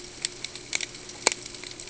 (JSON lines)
{"label": "ambient", "recorder": "HydroMoth"}